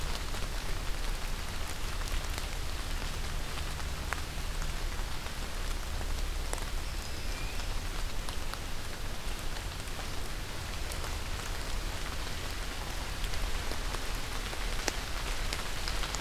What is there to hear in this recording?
forest ambience